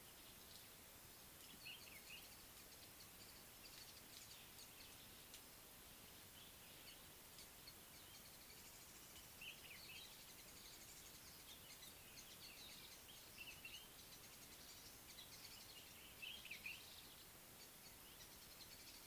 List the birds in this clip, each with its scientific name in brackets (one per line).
Common Bulbul (Pycnonotus barbatus)
Pale White-eye (Zosterops flavilateralis)